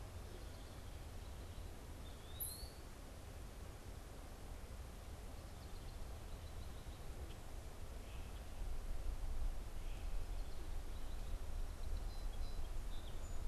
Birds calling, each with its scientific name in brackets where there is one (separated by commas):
Eastern Wood-Pewee (Contopus virens), Song Sparrow (Melospiza melodia), House Wren (Troglodytes aedon)